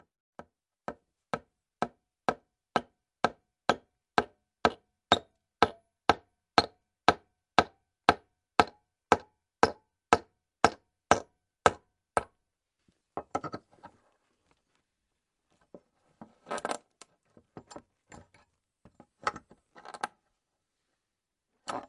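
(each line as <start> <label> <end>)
0.3 Hammering of a nail. 12.2
13.1 Someone is pulling out a nail with a hammer. 13.7
15.7 Someone is pulling out a nail with a hammer. 18.3
19.2 Someone is pulling out a nail with a hammer. 20.2
21.6 Someone is pulling out a nail with a hammer. 21.9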